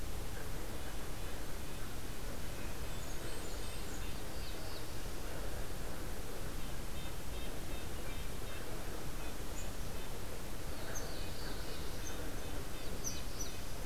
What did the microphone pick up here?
Red-breasted Nuthatch, Blackburnian Warbler, Black-throated Blue Warbler